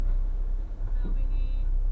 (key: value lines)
label: anthrophony, boat engine
recorder: SoundTrap 300